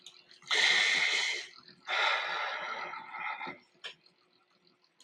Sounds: Sigh